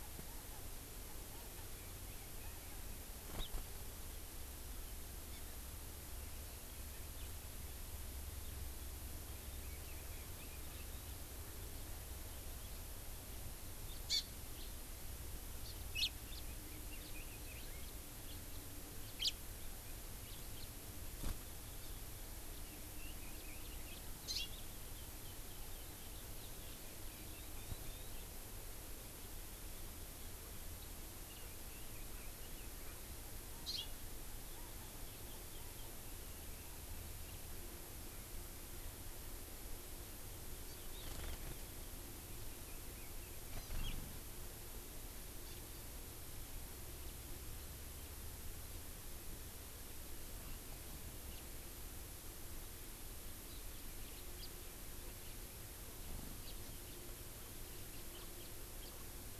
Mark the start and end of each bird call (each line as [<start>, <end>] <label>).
[3.36, 3.46] Hawaii Amakihi (Chlorodrepanis virens)
[5.26, 5.36] Hawaii Amakihi (Chlorodrepanis virens)
[7.16, 7.26] House Finch (Haemorhous mexicanus)
[9.36, 10.96] Chinese Hwamei (Garrulax canorus)
[13.86, 14.06] House Finch (Haemorhous mexicanus)
[14.06, 14.26] Hawaii Amakihi (Chlorodrepanis virens)
[14.56, 14.66] House Finch (Haemorhous mexicanus)
[15.66, 16.06] Hawaii Amakihi (Chlorodrepanis virens)
[16.26, 16.46] House Finch (Haemorhous mexicanus)
[16.36, 17.86] Chinese Hwamei (Garrulax canorus)
[16.96, 17.16] House Finch (Haemorhous mexicanus)
[17.76, 17.96] House Finch (Haemorhous mexicanus)
[18.26, 18.36] House Finch (Haemorhous mexicanus)
[19.16, 19.36] House Finch (Haemorhous mexicanus)
[20.26, 20.66] House Finch (Haemorhous mexicanus)
[22.56, 23.96] Chinese Hwamei (Garrulax canorus)
[24.26, 24.46] Hawaii Amakihi (Chlorodrepanis virens)
[31.26, 33.06] Chinese Hwamei (Garrulax canorus)
[33.66, 33.96] Hawaii Amakihi (Chlorodrepanis virens)
[43.56, 43.76] Hawaii Amakihi (Chlorodrepanis virens)
[45.46, 45.66] Hawaii Amakihi (Chlorodrepanis virens)
[53.46, 53.66] Hawaii Amakihi (Chlorodrepanis virens)
[54.36, 54.46] House Finch (Haemorhous mexicanus)
[55.26, 55.36] House Finch (Haemorhous mexicanus)
[56.46, 56.56] House Finch (Haemorhous mexicanus)
[56.86, 57.06] House Finch (Haemorhous mexicanus)
[58.16, 58.46] House Finch (Haemorhous mexicanus)
[58.76, 58.96] House Finch (Haemorhous mexicanus)